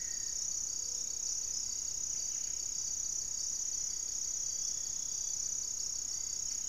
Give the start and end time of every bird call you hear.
[0.00, 6.68] Buff-breasted Wren (Cantorchilus leucotis)
[0.68, 1.18] Gray-fronted Dove (Leptotila rufaxilla)
[4.68, 6.68] Hauxwell's Thrush (Turdus hauxwelli)

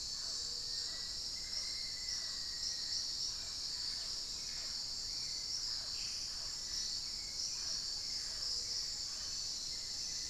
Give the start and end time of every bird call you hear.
[0.00, 10.30] Hauxwell's Thrush (Turdus hauxwelli)
[0.00, 10.30] Mealy Parrot (Amazona farinosa)
[0.47, 3.27] Black-faced Antthrush (Formicarius analis)
[5.67, 10.30] unidentified bird
[8.97, 9.47] Bluish-fronted Jacamar (Galbula cyanescens)

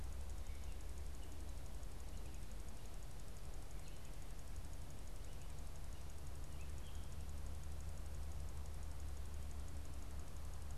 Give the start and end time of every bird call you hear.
[0.00, 10.77] Gray Catbird (Dumetella carolinensis)

